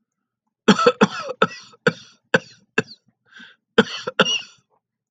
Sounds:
Cough